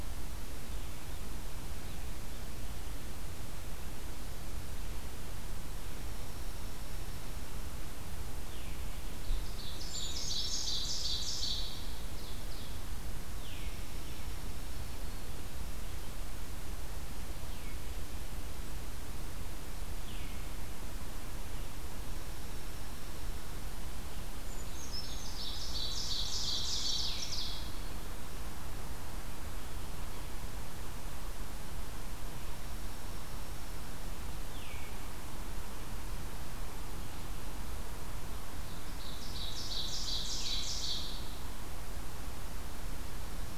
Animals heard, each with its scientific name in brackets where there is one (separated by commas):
Veery (Catharus fuscescens), Dark-eyed Junco (Junco hyemalis), Ovenbird (Seiurus aurocapilla), Brown Creeper (Certhia americana)